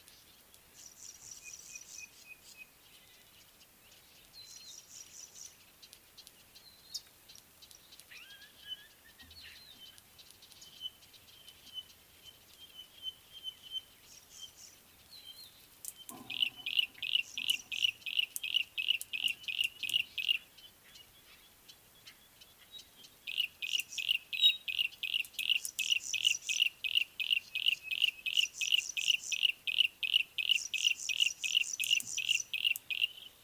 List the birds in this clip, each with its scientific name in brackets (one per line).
Yellow-breasted Apalis (Apalis flavida)
Pygmy Batis (Batis perkeo)
Pale Prinia (Prinia somalica)